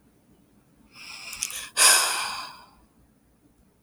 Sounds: Sigh